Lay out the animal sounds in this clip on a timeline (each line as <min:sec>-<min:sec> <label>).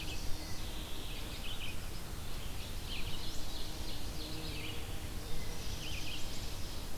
0:00.0-0:07.0 Red-eyed Vireo (Vireo olivaceus)
0:00.0-0:01.2 Mourning Warbler (Geothlypis philadelphia)
0:02.4-0:04.0 Ovenbird (Seiurus aurocapilla)
0:05.2-0:06.7 Chestnut-sided Warbler (Setophaga pensylvanica)